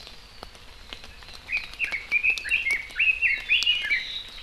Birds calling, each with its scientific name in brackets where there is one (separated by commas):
Red-billed Leiothrix (Leiothrix lutea), Omao (Myadestes obscurus)